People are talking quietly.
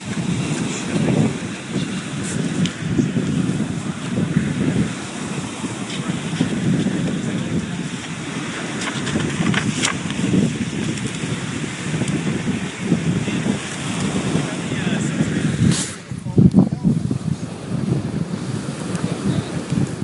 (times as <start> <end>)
12.7 20.0